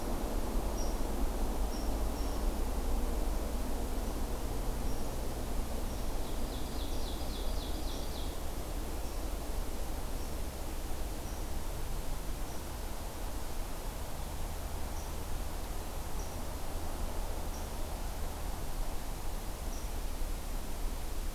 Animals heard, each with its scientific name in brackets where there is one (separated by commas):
Ovenbird (Seiurus aurocapilla)